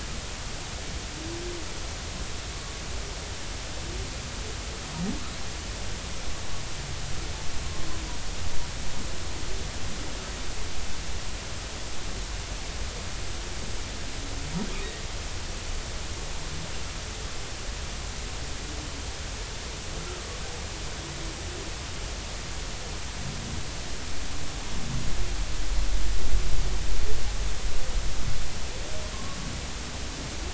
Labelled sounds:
29.1	29.4	humpback whale, 1.0 to 1.2 kHz

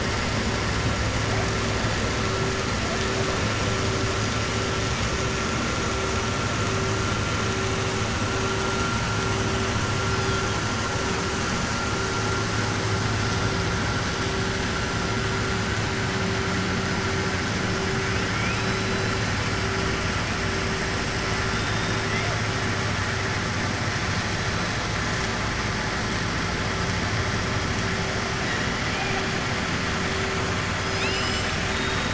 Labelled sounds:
30.8	32.1	killer whale, southern resident, 2.5 to 7.7 kHz

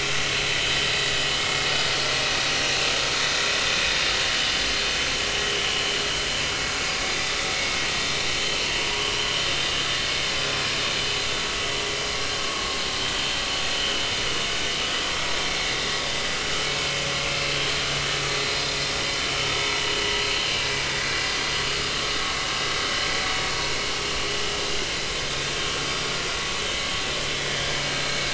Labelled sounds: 13.7	14.0	vessel noise, 2.8 to 3.0 kHz
17.3	17.5	vessel noise, 2.6 to 2.7 kHz
19.6	19.9	vessel noise, 0.86 to 1.1 kHz
27.9	28.2	vessel noise, 4.0 to 4.2 kHz

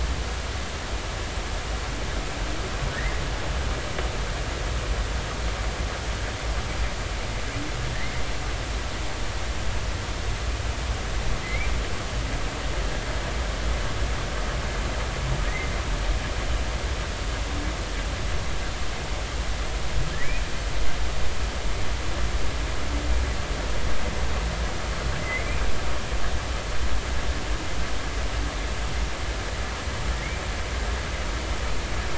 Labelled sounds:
11.4	11.7	humpback whale, 2.0 to 2.5 kHz
25.2	25.5	humpback whale, 2.0 to 2.2 kHz

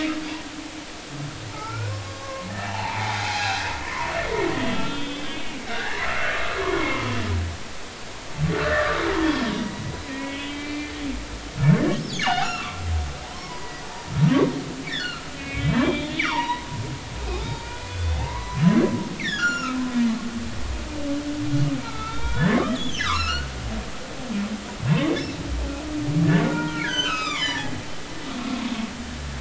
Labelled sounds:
0.5	4.1	humpback whale, 0.80 to 6.6 kHz
4.5	6.3	humpback whale, 1.2 to 4.0 kHz
6.7	7.2	humpback whale, 0.99 to 2.2 kHz
8.6	9.0	humpback whale, 1.1 to 2.0 kHz
9.5	11.0	humpback whale, 1.2 to 3.5 kHz
12.2	12.8	humpback whale, 0.80 to 3.0 kHz
13.2	13.9	humpback whale, 0.80 to 4.9 kHz
14.9	16.7	humpback whale, 0.83 to 4.5 kHz
17.3	18.8	humpback whale, 0.80 to 6.0 kHz
19.2	19.8	humpback whale, 1.2 to 7.2 kHz
21.8	23.5	humpback whale, 0.86 to 6.3 kHz
25.0	25.2	humpback whale, 2.1 to 2.3 kHz
26.5	27.7	humpback whale, 0.90 to 7.3 kHz
28.3	28.7	humpback whale, 0.96 to 1.2 kHz

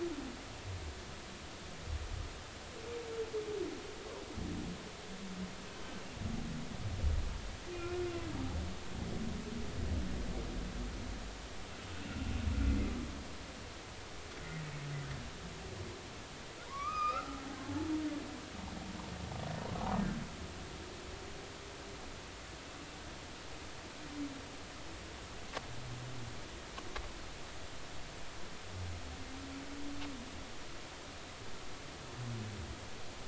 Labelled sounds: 5.7	6.0	humpback whale, 3.0 to 3.1 kHz
7.7	8.3	humpback whale, 1.3 to 2.8 kHz
12.0	12.3	humpback whale, 2.7 to 2.8 kHz
16.7	17.5	humpback whale, 0.90 to 5.1 kHz

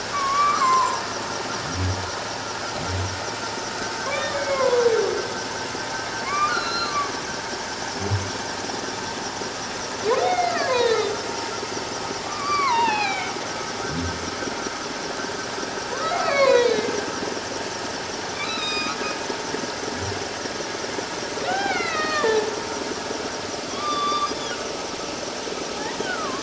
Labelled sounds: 0.1	1.0	humpback whale, 0.88 to 7.6 kHz
4.0	4.8	humpback whale, 0.94 to 3.7 kHz
6.2	7.1	humpback whale, 1.0 to 4.4 kHz
10.3	11.2	humpback whale, 0.91 to 4.2 kHz
12.2	13.3	humpback whale, 0.78 to 4.8 kHz
15.9	17.0	humpback whale, 0.91 to 4.6 kHz
18.3	19.0	humpback whale, 1.1 to 7.5 kHz
21.5	22.5	humpback whale, 0.78 to 4.5 kHz
23.7	24.3	humpback whale, 1.0 to 3.6 kHz
25.8	26.4	humpback whale, 0.97 to 2.0 kHz

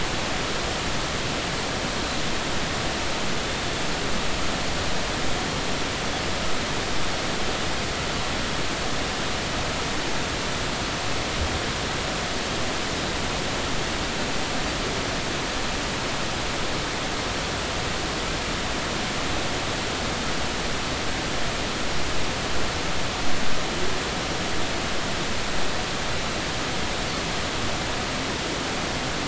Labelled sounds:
3.4	3.6	Pacific white-sided dolphin, 3.4 to 3.7 kHz

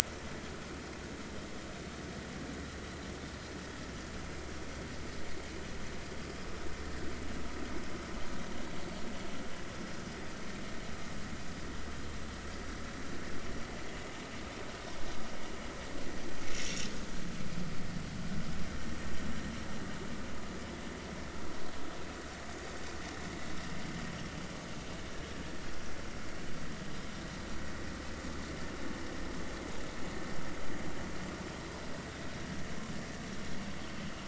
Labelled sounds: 16.5	16.9	vessel noise, 5.5 to 5.8 kHz

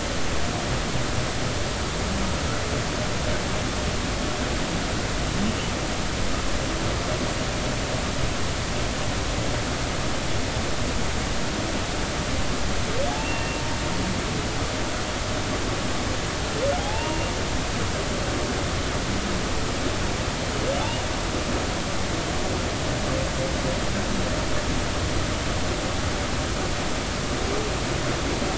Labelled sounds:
13.2	13.6	humpback whale, 2.6 to 2.8 kHz
16.8	17.3	humpback whale, 0.80 to 2.8 kHz

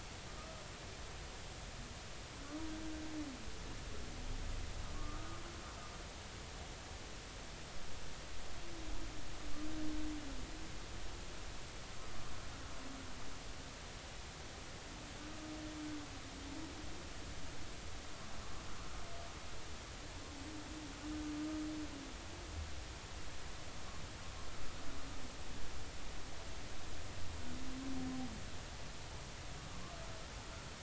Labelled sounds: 4.9	5.4	humpback whale, 1.1 to 1.3 kHz

